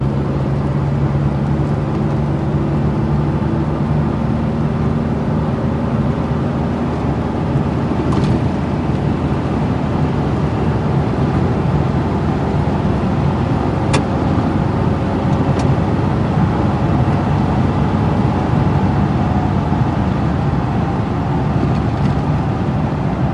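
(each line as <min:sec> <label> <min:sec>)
0:00.0 The interior audio of a Nissan Frontera 4x4 driving on a dirt road with the distinctive engine sound while moving on an unpaved surface. 0:23.3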